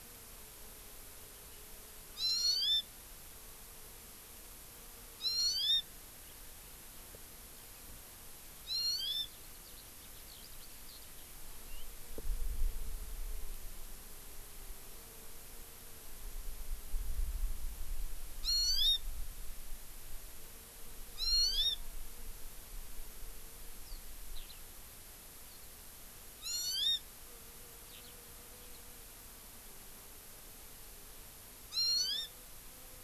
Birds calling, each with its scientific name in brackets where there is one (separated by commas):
Eurasian Skylark (Alauda arvensis), Hawaii Amakihi (Chlorodrepanis virens)